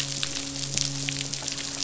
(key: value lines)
label: biophony, midshipman
recorder: SoundTrap 500